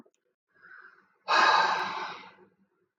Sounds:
Sigh